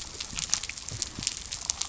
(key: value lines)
label: biophony
recorder: SoundTrap 300